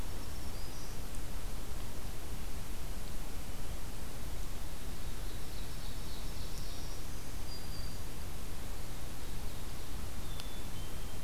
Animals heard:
Ovenbird (Seiurus aurocapilla), Black-capped Chickadee (Poecile atricapillus), Black-throated Green Warbler (Setophaga virens)

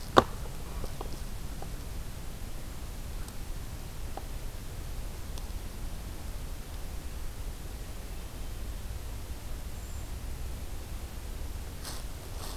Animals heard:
Brown Creeper (Certhia americana)

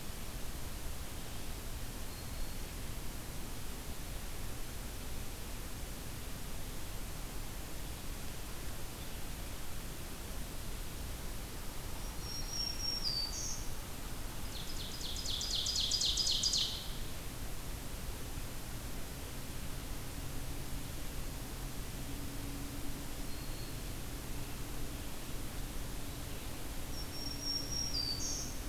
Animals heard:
Black-throated Green Warbler (Setophaga virens), Ovenbird (Seiurus aurocapilla)

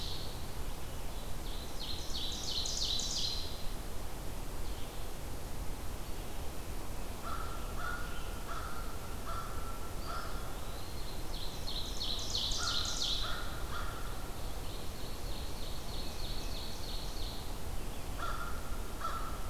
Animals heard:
Red-eyed Vireo (Vireo olivaceus), American Crow (Corvus brachyrhynchos), Ovenbird (Seiurus aurocapilla), Eastern Wood-Pewee (Contopus virens)

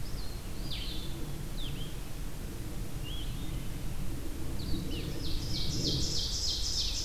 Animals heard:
Ovenbird (Seiurus aurocapilla), Blue-headed Vireo (Vireo solitarius), Hermit Thrush (Catharus guttatus)

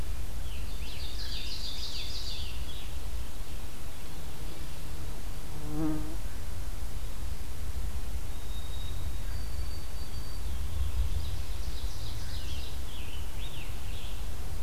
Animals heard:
Ovenbird (Seiurus aurocapilla), White-throated Sparrow (Zonotrichia albicollis), Scarlet Tanager (Piranga olivacea)

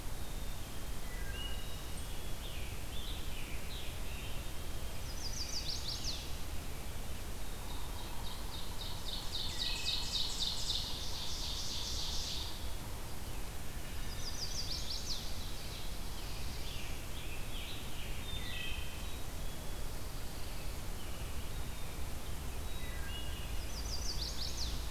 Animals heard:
Ovenbird (Seiurus aurocapilla), Scarlet Tanager (Piranga olivacea), Black-capped Chickadee (Poecile atricapillus), Black-throated Blue Warbler (Setophaga caerulescens), Chestnut-sided Warbler (Setophaga pensylvanica), Pine Warbler (Setophaga pinus), Wood Thrush (Hylocichla mustelina)

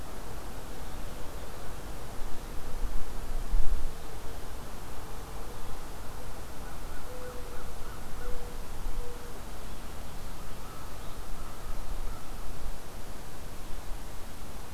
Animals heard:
Mourning Dove (Zenaida macroura), American Crow (Corvus brachyrhynchos)

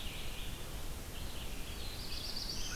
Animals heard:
Black-throated Blue Warbler (Setophaga caerulescens), American Crow (Corvus brachyrhynchos), Red-eyed Vireo (Vireo olivaceus)

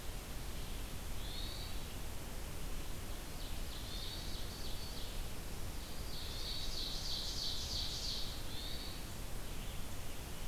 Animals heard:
Hermit Thrush (Catharus guttatus), Ovenbird (Seiurus aurocapilla)

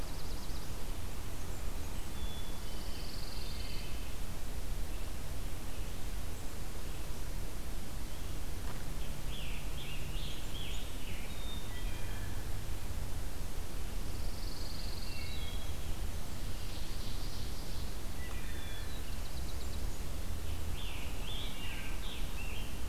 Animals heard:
Black-capped Chickadee (Poecile atricapillus), Blackburnian Warbler (Setophaga fusca), Scarlet Tanager (Piranga olivacea), Pine Warbler (Setophaga pinus), Black-and-white Warbler (Mniotilta varia), Golden-crowned Kinglet (Regulus satrapa), Wood Thrush (Hylocichla mustelina), Ovenbird (Seiurus aurocapilla)

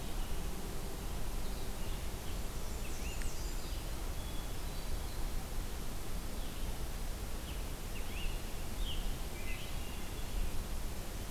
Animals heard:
Hermit Thrush (Catharus guttatus), Scarlet Tanager (Piranga olivacea), Blackburnian Warbler (Setophaga fusca), Blue-headed Vireo (Vireo solitarius)

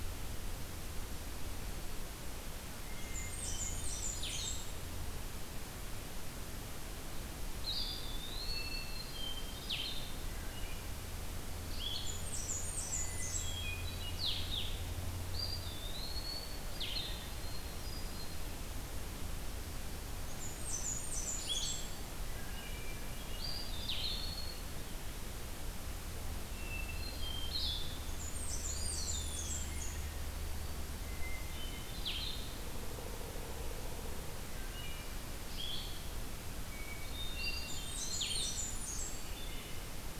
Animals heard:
Blue-headed Vireo (Vireo solitarius), Eastern Wood-Pewee (Contopus virens), Blackburnian Warbler (Setophaga fusca), Hermit Thrush (Catharus guttatus), Wood Thrush (Hylocichla mustelina)

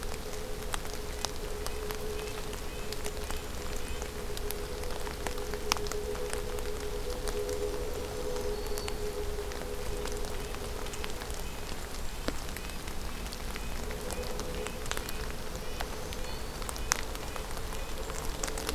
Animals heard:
Red-breasted Nuthatch (Sitta canadensis), Golden-crowned Kinglet (Regulus satrapa), Black-throated Green Warbler (Setophaga virens)

